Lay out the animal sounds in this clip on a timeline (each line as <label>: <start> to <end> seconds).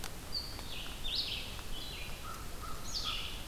Red-eyed Vireo (Vireo olivaceus): 0.0 to 3.5 seconds
American Crow (Corvus brachyrhynchos): 2.0 to 3.5 seconds